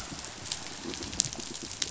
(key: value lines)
label: biophony
recorder: SoundTrap 500